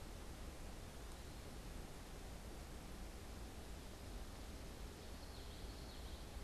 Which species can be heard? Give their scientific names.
Geothlypis trichas